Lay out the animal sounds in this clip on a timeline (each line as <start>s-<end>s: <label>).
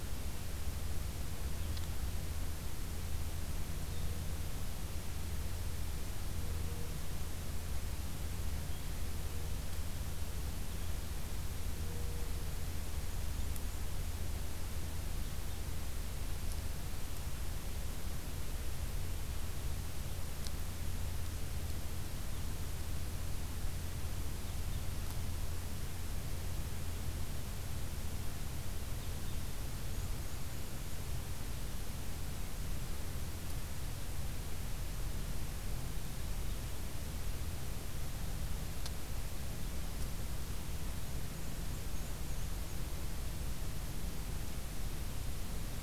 12.6s-13.9s: Black-and-white Warbler (Mniotilta varia)
29.7s-31.0s: Black-and-white Warbler (Mniotilta varia)
40.6s-42.9s: Black-and-white Warbler (Mniotilta varia)